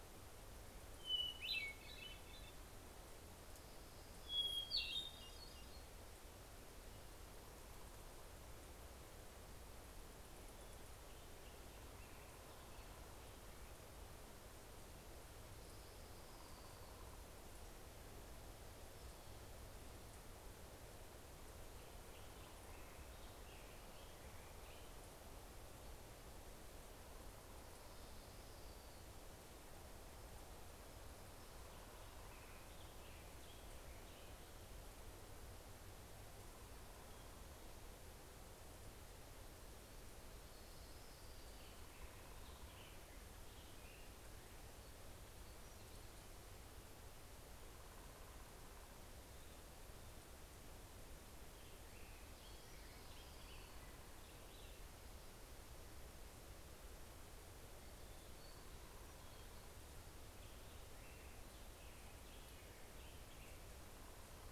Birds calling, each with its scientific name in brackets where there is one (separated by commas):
Hermit Thrush (Catharus guttatus), American Robin (Turdus migratorius), Orange-crowned Warbler (Leiothlypis celata), Hermit Warbler (Setophaga occidentalis), Black-headed Grosbeak (Pheucticus melanocephalus)